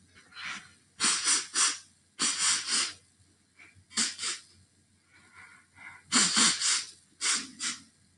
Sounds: Sniff